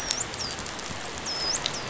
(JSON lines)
{"label": "biophony, dolphin", "recorder": "SoundTrap 500"}